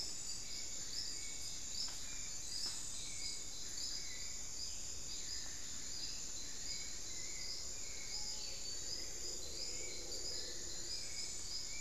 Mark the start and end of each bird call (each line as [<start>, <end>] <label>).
[0.00, 11.80] Hauxwell's Thrush (Turdus hauxwelli)
[8.07, 8.37] Screaming Piha (Lipaugus vociferans)